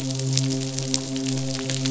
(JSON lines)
{"label": "biophony, midshipman", "recorder": "SoundTrap 500"}